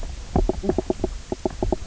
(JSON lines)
{"label": "biophony, knock croak", "recorder": "SoundTrap 300"}